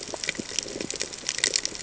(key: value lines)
label: ambient
recorder: HydroMoth